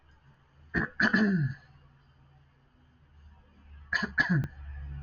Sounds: Cough